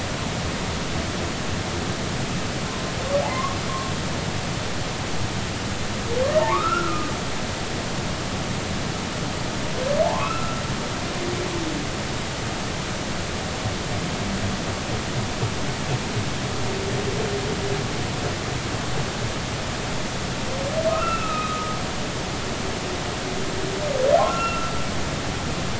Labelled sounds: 3.2	3.6	humpback whale, 0.80 to 1.2 kHz
6.4	7.1	humpback whale, 0.83 to 1.5 kHz
10.0	10.6	humpback whale, 0.80 to 2.7 kHz
20.9	21.8	humpback whale, 1.2 to 2.8 kHz
24.2	24.7	humpback whale, 1.3 to 2.8 kHz

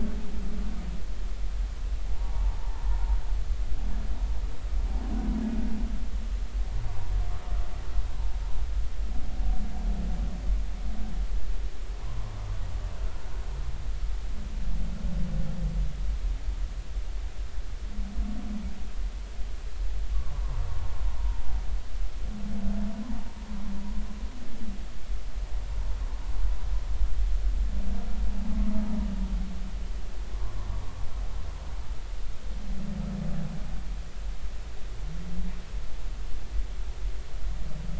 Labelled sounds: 2.6	2.8	humpback whale, 0.83 to 1.1 kHz
12.0	12.3	humpback whale, 0.93 to 1.2 kHz
20.3	20.6	humpback whale, 0.83 to 1.2 kHz

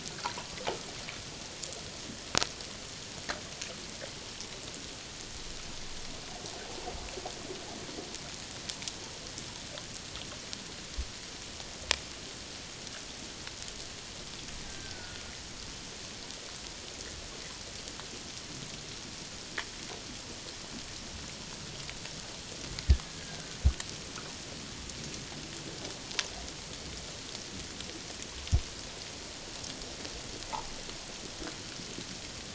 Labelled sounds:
14.6	15.3	killer whale, Bigg's (transient), 1.4 to 1.7 kHz
23.0	23.5	killer whale, Bigg's (transient), 1.5 to 1.7 kHz

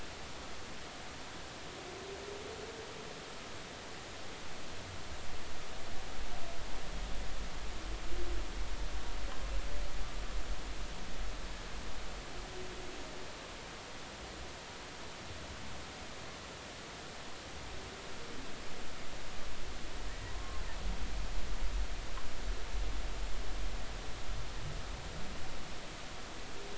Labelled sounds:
20.2	20.6	humpback whale, 0.93 to 1.1 kHz

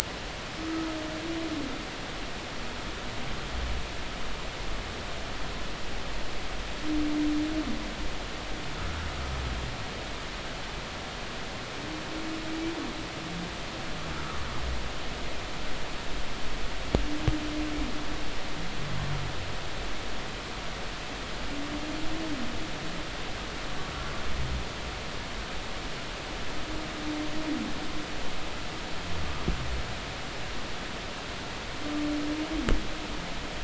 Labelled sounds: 0.6	0.9	humpback whale, 1.2 to 1.3 kHz

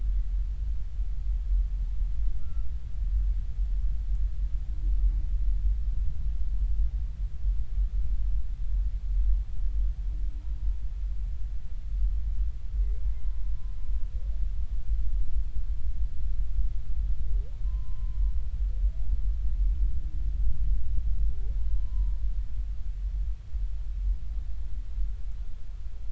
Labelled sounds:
2.4	2.7	humpback whale, 1.2 to 1.4 kHz
13.0	13.5	humpback whale, 0.86 to 1.1 kHz
17.6	18.2	humpback whale, 0.96 to 1.1 kHz
21.7	22.2	humpback whale, 0.90 to 1.1 kHz

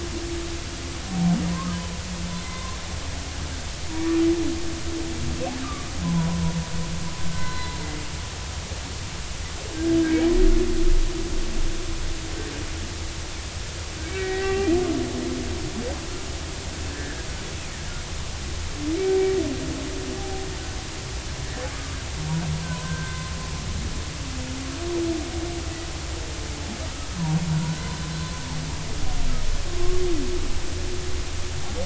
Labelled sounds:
1.5	1.8	humpback whale, 0.93 to 1.3 kHz
2.4	2.8	humpback whale, 0.99 to 2.1 kHz
6.0	6.4	humpback whale, 0.93 to 1.1 kHz
7.3	7.8	humpback whale, 0.96 to 4.1 kHz
10.1	10.3	humpback whale, 2.1 to 2.4 kHz
14.0	14.7	humpback whale, 0.80 to 2.8 kHz
16.9	17.3	humpback whale, 1.5 to 1.9 kHz
21.2	22.0	humpback whale, 0.80 to 1.3 kHz
22.5	23.3	humpback whale, 0.96 to 1.6 kHz
27.5	28.4	humpback whale, 1.3 to 4.1 kHz
29.8	30.0	humpback whale, 1.0 to 1.2 kHz

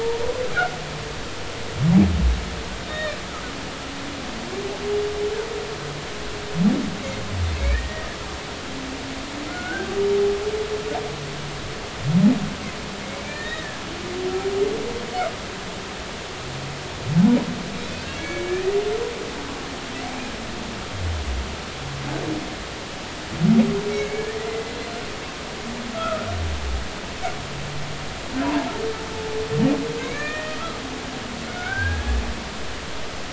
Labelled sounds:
2.9	3.2	humpback whale, 1.7 to 3.8 kHz
7.6	8.2	humpback whale, 1.7 to 2.5 kHz
10.5	10.9	humpback whale, 1.3 to 1.6 kHz
13.1	13.8	humpback whale, 1.6 to 2.4 kHz
18.2	18.7	humpback whale, 1.6 to 2.5 kHz
23.9	24.7	humpback whale, 2.0 to 2.3 kHz
25.9	26.3	humpback whale, 1.2 to 1.5 kHz
28.4	28.7	humpback whale, 0.83 to 1.1 kHz
30.0	30.6	humpback whale, 1.1 to 2.5 kHz
32.5	33.0	humpback whale, 1.4 to 1.7 kHz

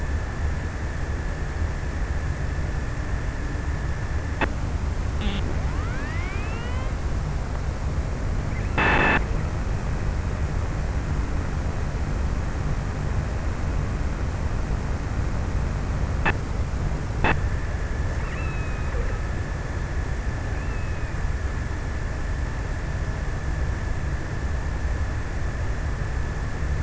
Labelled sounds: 18.0	19.3	killer whale, offshore, 0.89 to 3.0 kHz

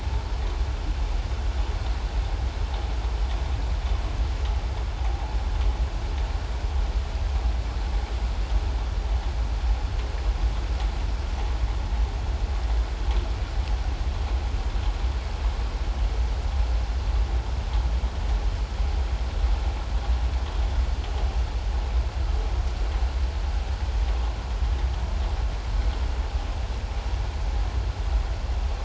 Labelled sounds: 5.0	5.4	vessel noise, 0.78 to 0.97 kHz

